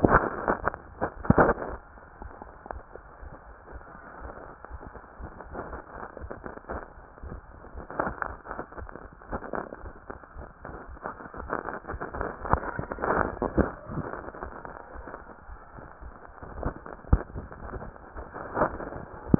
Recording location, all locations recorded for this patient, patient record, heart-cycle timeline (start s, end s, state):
mitral valve (MV)
aortic valve (AV)+pulmonary valve (PV)+tricuspid valve (TV)+mitral valve (MV)
#Age: nan
#Sex: Female
#Height: nan
#Weight: nan
#Pregnancy status: True
#Murmur: Absent
#Murmur locations: nan
#Most audible location: nan
#Systolic murmur timing: nan
#Systolic murmur shape: nan
#Systolic murmur grading: nan
#Systolic murmur pitch: nan
#Systolic murmur quality: nan
#Diastolic murmur timing: nan
#Diastolic murmur shape: nan
#Diastolic murmur grading: nan
#Diastolic murmur pitch: nan
#Diastolic murmur quality: nan
#Outcome: Normal
#Campaign: 2015 screening campaign
0.00	1.96	unannotated
1.96	2.17	diastole
2.17	2.29	S1
2.29	2.39	systole
2.39	2.48	S2
2.48	2.69	diastole
2.69	2.82	S1
2.82	2.93	systole
2.93	3.03	S2
3.03	3.20	diastole
3.20	3.33	S1
3.33	3.46	systole
3.46	3.56	S2
3.56	3.74	diastole
3.74	3.82	S1
3.82	3.94	systole
3.94	4.00	S2
4.00	4.20	diastole
4.20	4.32	S1
4.32	4.46	systole
4.46	4.52	S2
4.52	4.70	diastole
4.70	4.82	S1
4.82	4.95	systole
4.95	5.02	S2
5.02	5.18	diastole
5.18	5.32	S1
5.32	5.42	systole
5.42	5.50	S2
5.50	5.66	diastole
5.66	5.80	S1
5.80	5.96	systole
5.96	6.04	S2
6.04	6.21	diastole
6.21	6.32	S1
6.32	6.43	systole
6.43	6.52	S2
6.52	6.70	diastole
6.70	6.82	S1
6.82	6.96	systole
6.96	7.02	S2
7.02	7.22	diastole
7.22	7.40	S1
7.40	7.54	systole
7.54	7.58	S2
7.58	7.74	diastole
7.74	19.39	unannotated